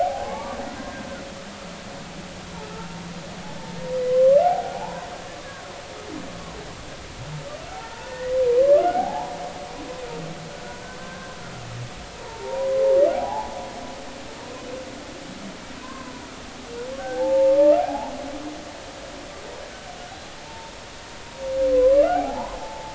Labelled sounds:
0.0	0.6	humpback whale, 0.80 to 1.2 kHz
4.1	5.1	humpback whale, 0.80 to 1.2 kHz
7.8	9.3	humpback whale, 0.80 to 2.0 kHz
10.6	11.4	humpback whale, 1.4 to 1.7 kHz
12.1	12.9	humpback whale, 0.80 to 1.1 kHz
13.1	13.6	humpback whale, 0.80 to 1.0 kHz
15.8	16.1	humpback whale, 0.96 to 1.2 kHz
17.6	18.6	humpback whale, 0.80 to 1.7 kHz
20.5	20.7	humpback whale, 0.86 to 0.96 kHz
21.7	22.9	humpback whale, 0.80 to 1.2 kHz

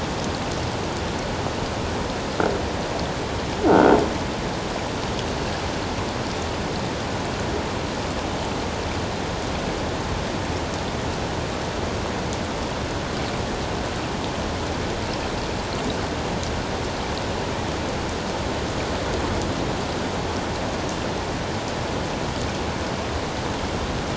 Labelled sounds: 3.7	4.0	croaking sound likely from a nearby submerged object, 1.3 to 1.6 kHz

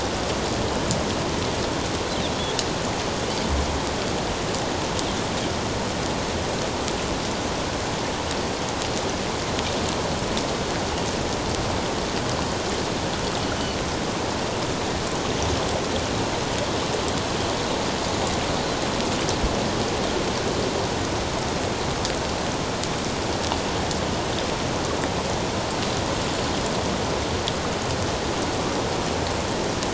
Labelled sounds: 13.5	13.8	Pacific white-sided dolphin, 4.3 to 4.6 kHz

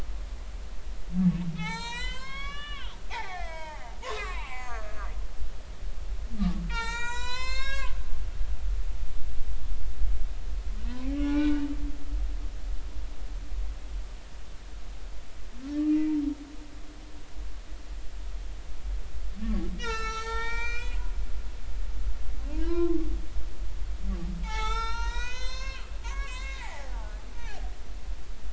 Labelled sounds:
1.5	5.1	humpback whale, 0.80 to 8.0 kHz
6.7	7.9	humpback whale, 0.83 to 8.0 kHz
11.2	11.7	humpback whale, 1.1 to 3.9 kHz
15.8	16.1	humpback whale, 2.7 to 2.8 kHz
19.8	21.1	humpback whale, 0.83 to 8.0 kHz
22.7	23.0	humpback whale, 0.96 to 1.4 kHz
24.4	26.9	humpback whale, 0.80 to 7.8 kHz
27.3	27.6	humpback whale, 0.80 to 0.99 kHz

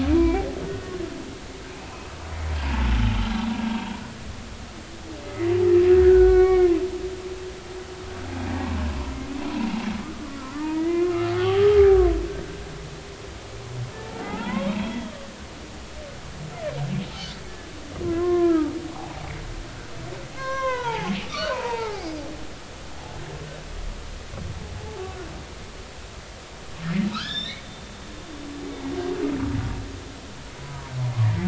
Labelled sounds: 0.1	0.5	humpback whale, 0.90 to 2.4 kHz
1.7	2.9	humpback whale, 0.83 to 2.6 kHz
5.2	5.5	humpback whale, 1.9 to 2.2 kHz
6.0	6.8	humpback whale, 0.96 to 2.3 kHz
8.6	11.7	humpback whale, 0.80 to 3.4 kHz
14.2	15.3	humpback whale, 0.80 to 3.4 kHz
17.2	17.4	humpback whale, 4.3 to 4.7 kHz
18.0	19.2	humpback whale, 0.80 to 1.8 kHz
20.4	22.0	humpback whale, 0.80 to 6.0 kHz
24.8	25.0	humpback whale, 0.80 to 0.93 kHz
27.1	27.6	humpback whale, 1.1 to 4.2 kHz
30.6	31.4	humpback whale, 0.90 to 2.2 kHz

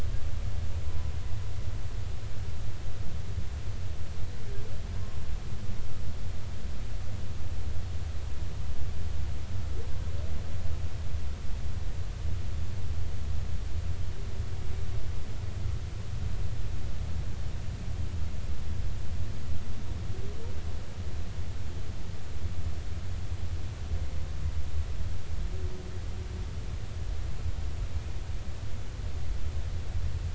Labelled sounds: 0.8	1.1	humpback whale, 0.96 to 1.1 kHz

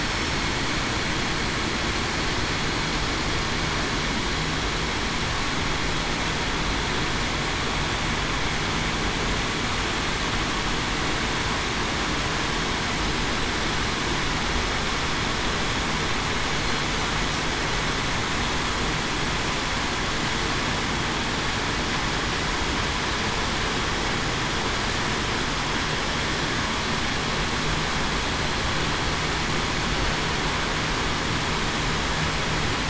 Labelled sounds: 0.0	0.4	killer whale, southern resident, 5.3 to 5.5 kHz

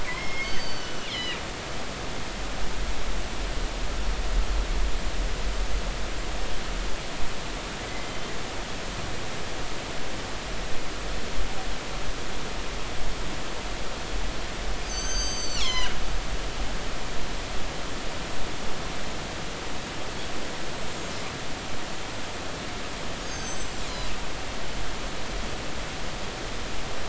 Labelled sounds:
0.0	1.4	killer whale, northern resident, G clan, 1.8 to 6.2 kHz
7.9	8.1	killer whale, northern resident, G clan, 1.9 to 2.1 kHz
14.8	15.9	killer whale, northern resident, G clan, 0.96 to 7.8 kHz
23.2	23.8	killer whale, northern resident, G clan, 4.6 to 8.0 kHz

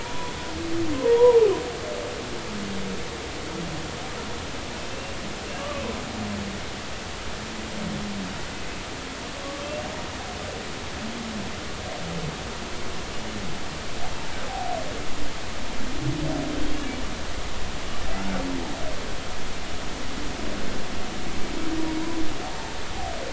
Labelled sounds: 0.0	0.3	humpback whale, 0.90 to 1.0 kHz
0.9	1.4	humpback whale, 0.86 to 1.1 kHz
4.9	5.2	humpback whale, 2.6 to 2.8 kHz
5.5	5.7	humpback whale, 2.7 to 2.9 kHz
18.2	18.4	humpback whale, 1.3 to 1.5 kHz

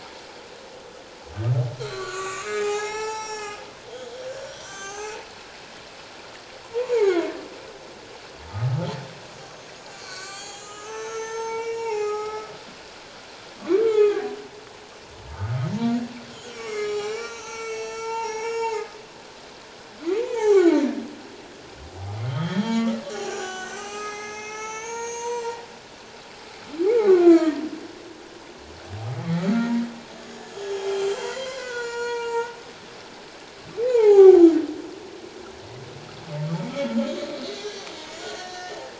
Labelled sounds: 1.8	3.6	humpback whale, 0.78 to 8.0 kHz
4.4	5.2	humpback whale, 0.78 to 7.6 kHz
6.7	7.3	humpback whale, 0.81 to 7.1 kHz
8.5	8.9	humpback whale, 1.2 to 1.4 kHz
9.9	12.5	humpback whale, 0.78 to 7.8 kHz
13.8	14.3	humpback whale, 1.1 to 3.2 kHz
15.3	15.6	humpback whale, 1.2 to 1.3 kHz
16.5	18.9	humpback whale, 0.78 to 7.9 kHz
20.1	20.8	humpback whale, 0.78 to 7.4 kHz
22.3	25.5	humpback whale, 0.78 to 8.0 kHz
26.9	27.6	humpback whale, 0.97 to 2.5 kHz
29.4	30.5	humpback whale, 1.2 to 6.9 kHz
30.9	32.5	humpback whale, 0.81 to 7.6 kHz
33.9	34.5	humpback whale, 0.78 to 2.6 kHz
37.1	37.9	humpback whale, 5.6 to 6.7 kHz
38.2	38.8	humpback whale, 1.4 to 4.4 kHz

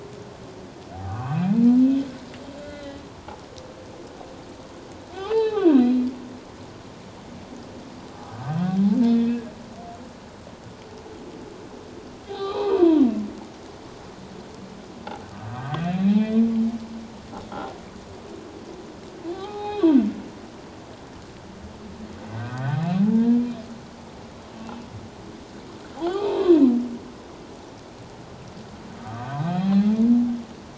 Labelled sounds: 1.0	1.4	humpback whale, 1.0 to 1.3 kHz
2.6	3.0	humpback whale, 1.4 to 4.1 kHz
5.1	6.0	humpback whale, 0.78 to 4.1 kHz
8.3	9.4	humpback whale, 1.5 to 3.6 kHz
12.3	12.7	humpback whale, 1.5 to 4.2 kHz
15.5	16.3	humpback whale, 1.0 to 4.1 kHz
19.3	20.1	humpback whale, 0.78 to 4.2 kHz
22.3	23.4	humpback whale, 0.78 to 2.7 kHz
25.9	26.5	humpback whale, 0.78 to 4.0 kHz
29.0	30.0	humpback whale, 0.78 to 4.5 kHz

